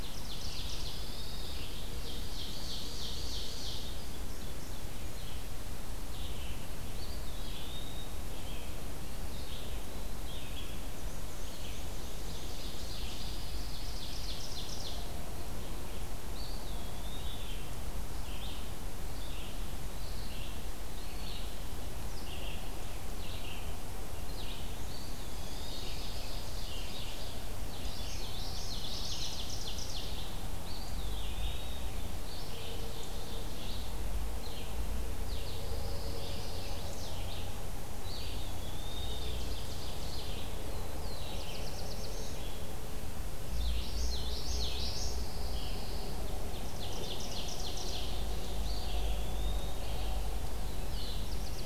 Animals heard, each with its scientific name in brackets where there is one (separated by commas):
Common Yellowthroat (Geothlypis trichas), Black-and-white Warbler (Mniotilta varia), Pine Warbler (Setophaga pinus), Red-eyed Vireo (Vireo olivaceus), Black-throated Blue Warbler (Setophaga caerulescens), Eastern Wood-Pewee (Contopus virens), Ovenbird (Seiurus aurocapilla)